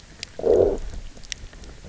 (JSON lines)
{"label": "biophony, low growl", "recorder": "SoundTrap 300"}